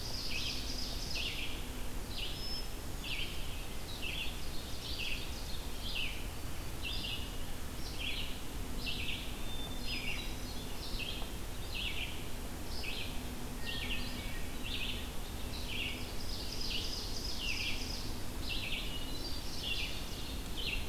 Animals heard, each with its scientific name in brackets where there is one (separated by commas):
Red-eyed Vireo (Vireo olivaceus), Hermit Thrush (Catharus guttatus), Ovenbird (Seiurus aurocapilla)